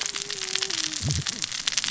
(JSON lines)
{"label": "biophony, cascading saw", "recorder": "SoundTrap 600 or HydroMoth"}